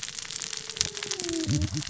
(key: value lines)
label: biophony, cascading saw
recorder: SoundTrap 600 or HydroMoth